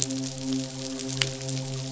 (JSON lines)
{"label": "biophony, midshipman", "recorder": "SoundTrap 500"}